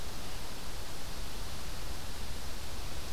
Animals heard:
forest ambience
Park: Acadia National Park